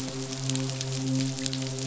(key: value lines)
label: biophony, midshipman
recorder: SoundTrap 500